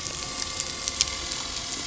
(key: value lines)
label: anthrophony, boat engine
recorder: SoundTrap 300